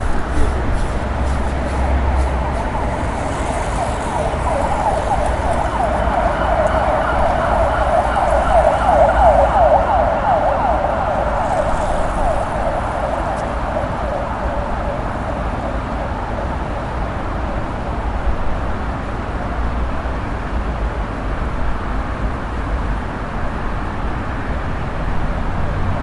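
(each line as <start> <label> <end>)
0.0 A cyclist pedals a bicycle on the road in a steady pattern. 3.5
2.5 An ambulance or police car honks repeatedly while passing on a wet road, with the honking gradually increasing and decreasing in echo. 19.5
19.4 A car is driving steadily on the road. 26.0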